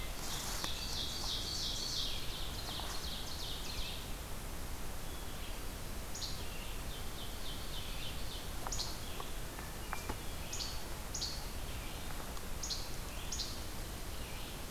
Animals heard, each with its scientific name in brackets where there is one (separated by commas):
Ovenbird (Seiurus aurocapilla), Red-eyed Vireo (Vireo olivaceus), Hermit Thrush (Catharus guttatus), Least Flycatcher (Empidonax minimus)